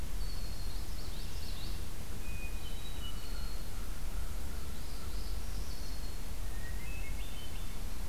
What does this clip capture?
Red-winged Blackbird, Common Yellowthroat, Hermit Thrush, American Crow, Northern Parula